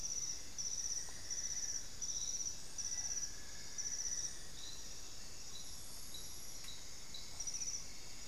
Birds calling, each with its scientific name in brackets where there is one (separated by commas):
White-necked Thrush (Turdus albicollis), Grayish Mourner (Rhytipterna simplex), Amazonian Barred-Woodcreeper (Dendrocolaptes certhia), Cinnamon-throated Woodcreeper (Dendrexetastes rufigula), Black-faced Antthrush (Formicarius analis)